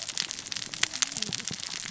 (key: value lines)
label: biophony, cascading saw
recorder: SoundTrap 600 or HydroMoth